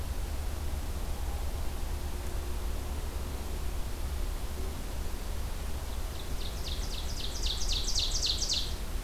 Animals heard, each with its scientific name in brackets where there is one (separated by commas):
Ovenbird (Seiurus aurocapilla)